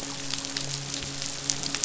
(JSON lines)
{"label": "biophony, midshipman", "recorder": "SoundTrap 500"}